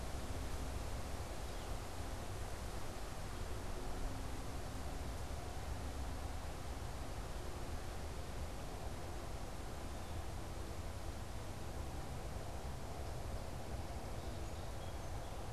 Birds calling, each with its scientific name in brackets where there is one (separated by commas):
Song Sparrow (Melospiza melodia), Northern Flicker (Colaptes auratus)